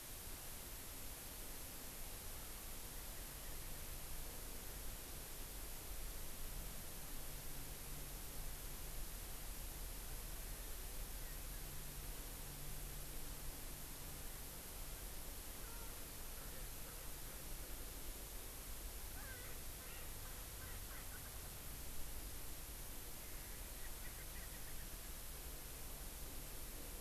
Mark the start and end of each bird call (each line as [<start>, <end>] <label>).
[15.65, 15.95] Erckel's Francolin (Pternistis erckelii)
[16.35, 16.75] Erckel's Francolin (Pternistis erckelii)
[19.15, 20.05] Erckel's Francolin (Pternistis erckelii)
[20.55, 21.05] Erckel's Francolin (Pternistis erckelii)
[23.85, 25.05] Erckel's Francolin (Pternistis erckelii)